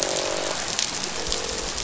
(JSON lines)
{"label": "biophony, croak", "recorder": "SoundTrap 500"}